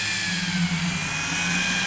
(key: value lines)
label: anthrophony, boat engine
recorder: SoundTrap 500